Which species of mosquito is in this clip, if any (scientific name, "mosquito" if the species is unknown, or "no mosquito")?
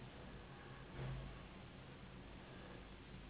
Anopheles gambiae s.s.